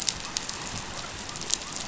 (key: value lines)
label: biophony
recorder: SoundTrap 500